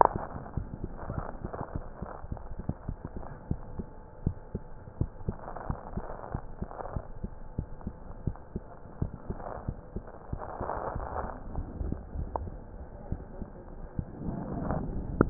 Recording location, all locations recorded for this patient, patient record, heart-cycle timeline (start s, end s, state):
mitral valve (MV)
aortic valve (AV)+pulmonary valve (PV)+tricuspid valve (TV)+mitral valve (MV)
#Age: Child
#Sex: Female
#Height: 115.0 cm
#Weight: 26.8 kg
#Pregnancy status: False
#Murmur: Absent
#Murmur locations: nan
#Most audible location: nan
#Systolic murmur timing: nan
#Systolic murmur shape: nan
#Systolic murmur grading: nan
#Systolic murmur pitch: nan
#Systolic murmur quality: nan
#Diastolic murmur timing: nan
#Diastolic murmur shape: nan
#Diastolic murmur grading: nan
#Diastolic murmur pitch: nan
#Diastolic murmur quality: nan
#Outcome: Normal
#Campaign: 2015 screening campaign
0.00	3.90	unannotated
3.90	4.20	diastole
4.20	4.34	S1
4.34	4.52	systole
4.52	4.66	S2
4.66	4.94	diastole
4.94	5.08	S1
5.08	5.26	systole
5.26	5.40	S2
5.40	5.68	diastole
5.68	5.78	S1
5.78	5.96	systole
5.96	6.06	S2
6.06	6.28	diastole
6.28	6.42	S1
6.42	6.60	systole
6.60	6.70	S2
6.70	6.90	diastole
6.90	7.04	S1
7.04	7.22	systole
7.22	7.32	S2
7.32	7.56	diastole
7.56	7.70	S1
7.70	7.84	systole
7.84	7.94	S2
7.94	8.24	diastole
8.24	8.38	S1
8.38	8.54	systole
8.54	8.66	S2
8.66	8.96	diastole
8.96	9.12	S1
9.12	9.28	systole
9.28	9.38	S2
9.38	9.62	diastole
9.62	9.76	S1
9.76	9.94	systole
9.94	10.06	S2
10.06	10.30	diastole
10.30	10.40	S1
10.40	10.58	systole
10.58	10.70	S2
10.70	10.92	diastole
10.92	15.30	unannotated